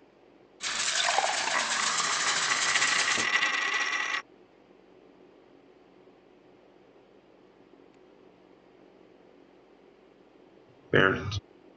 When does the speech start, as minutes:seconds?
0:11